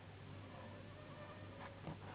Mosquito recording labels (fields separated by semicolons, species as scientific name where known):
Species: Anopheles gambiae s.s.; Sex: female; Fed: unfed; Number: one; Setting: insect culture